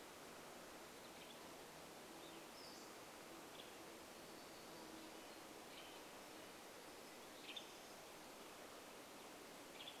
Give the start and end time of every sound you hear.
[0, 10] Western Tanager call
[2, 4] Hutton's Vireo song
[2, 4] Pacific-slope Flycatcher call
[2, 6] insect buzz
[4, 6] Red-breasted Nuthatch song
[4, 8] warbler song

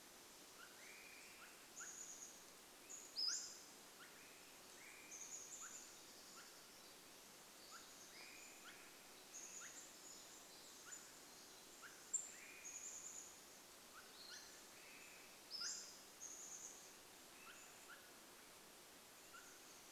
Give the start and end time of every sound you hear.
[0, 10] Chestnut-backed Chickadee call
[0, 20] Swainson's Thrush call
[2, 4] Pacific-slope Flycatcher call
[2, 12] Pacific Wren song
[12, 14] Chestnut-backed Chickadee call
[12, 14] unidentified bird chip note
[12, 16] Pacific-slope Flycatcher call
[16, 18] Chestnut-backed Chickadee call

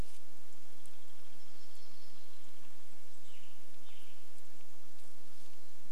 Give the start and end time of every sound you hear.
[0, 4] unidentified sound
[0, 4] warbler song
[2, 4] Red-breasted Nuthatch song
[2, 6] Western Tanager song

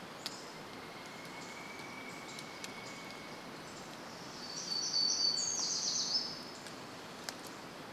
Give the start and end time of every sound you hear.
[0, 2] Pacific-slope Flycatcher call
[0, 4] Northern Flicker call
[0, 4] unidentified bird chip note
[4, 8] warbler song

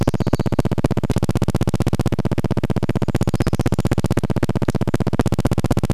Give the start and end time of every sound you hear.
[0, 2] warbler song
[0, 6] recorder noise
[2, 4] Brown Creeper song

